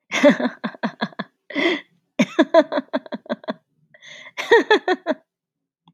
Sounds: Laughter